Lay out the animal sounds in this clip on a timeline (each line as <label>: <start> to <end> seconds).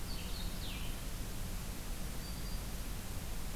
Blue-headed Vireo (Vireo solitarius): 0.0 to 3.6 seconds
Black-throated Green Warbler (Setophaga virens): 1.8 to 2.7 seconds